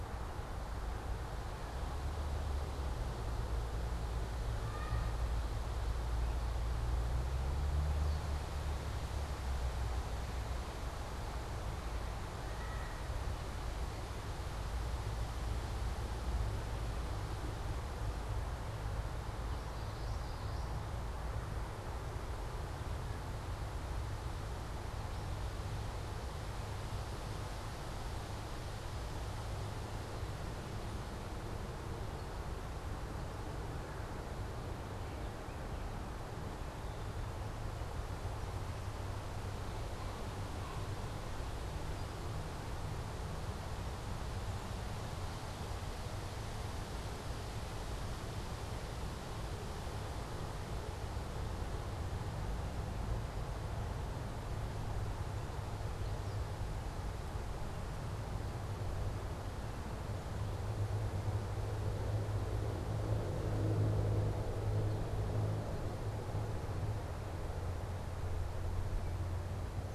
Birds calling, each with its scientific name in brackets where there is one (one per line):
Common Yellowthroat (Geothlypis trichas)
unidentified bird
American Robin (Turdus migratorius)